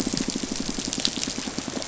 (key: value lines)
label: biophony, pulse
recorder: SoundTrap 500